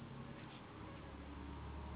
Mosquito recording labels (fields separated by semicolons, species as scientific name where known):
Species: Anopheles gambiae s.s.; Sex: female; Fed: unfed; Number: one; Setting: insect culture